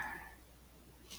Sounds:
Laughter